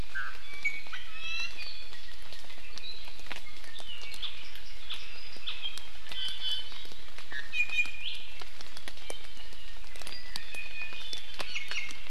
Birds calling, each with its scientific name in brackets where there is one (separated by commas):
Iiwi (Drepanis coccinea)